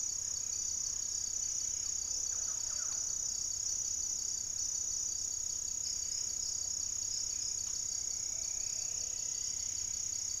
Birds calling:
Plumbeous Antbird (Myrmelastes hyperythrus), Buff-breasted Wren (Cantorchilus leucotis), Striped Woodcreeper (Xiphorhynchus obsoletus), Black-faced Antthrush (Formicarius analis), Thrush-like Wren (Campylorhynchus turdinus), Plumbeous Pigeon (Patagioenas plumbea)

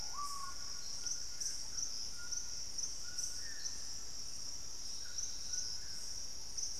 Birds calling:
Dusky-throated Antshrike (Thamnomanes ardesiacus), Screaming Piha (Lipaugus vociferans), White-throated Toucan (Ramphastos tucanus)

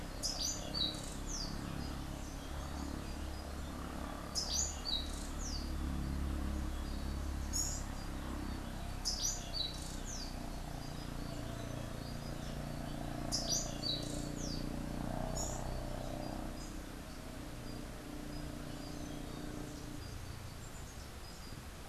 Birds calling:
unidentified bird, Orange-billed Nightingale-Thrush (Catharus aurantiirostris)

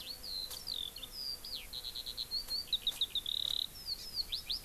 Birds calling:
Eurasian Skylark (Alauda arvensis), Japanese Bush Warbler (Horornis diphone)

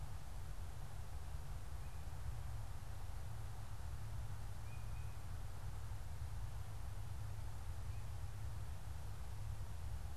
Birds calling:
Tufted Titmouse (Baeolophus bicolor)

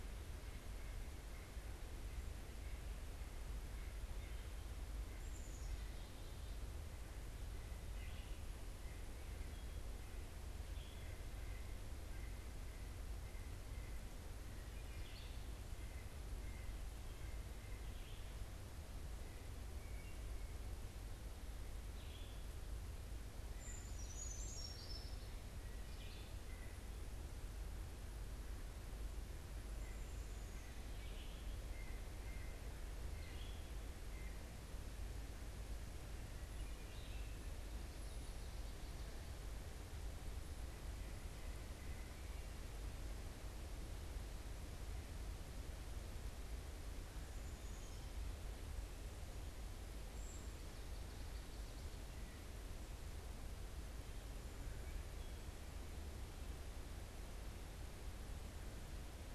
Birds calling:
Red-eyed Vireo (Vireo olivaceus), Black-capped Chickadee (Poecile atricapillus), Common Yellowthroat (Geothlypis trichas), Wood Thrush (Hylocichla mustelina), American Robin (Turdus migratorius), White-breasted Nuthatch (Sitta carolinensis), Brown Creeper (Certhia americana)

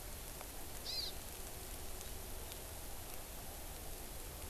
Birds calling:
Hawaii Amakihi (Chlorodrepanis virens)

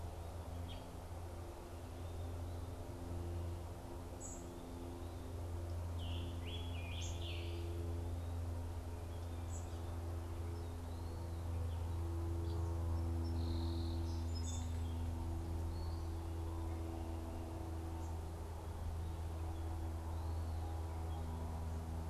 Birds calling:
Scarlet Tanager (Piranga olivacea), Song Sparrow (Melospiza melodia), unidentified bird

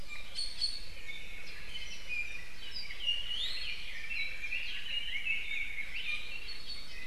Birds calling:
Red-billed Leiothrix (Leiothrix lutea), Iiwi (Drepanis coccinea), Apapane (Himatione sanguinea)

